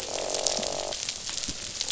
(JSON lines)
{"label": "biophony, croak", "recorder": "SoundTrap 500"}